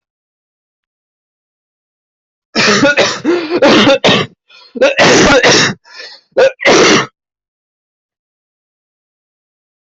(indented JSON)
{
  "expert_labels": [
    {
      "quality": "good",
      "cough_type": "wet",
      "dyspnea": false,
      "wheezing": false,
      "stridor": false,
      "choking": false,
      "congestion": false,
      "nothing": true,
      "diagnosis": "upper respiratory tract infection",
      "severity": "severe"
    }
  ],
  "age": 21,
  "gender": "male",
  "respiratory_condition": false,
  "fever_muscle_pain": false,
  "status": "symptomatic"
}